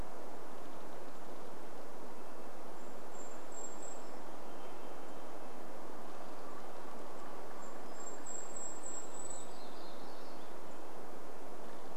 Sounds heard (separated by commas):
Golden-crowned Kinglet song, Varied Thrush song, warbler song, tree creak, Red-breasted Nuthatch song, unidentified sound